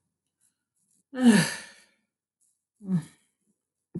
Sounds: Sigh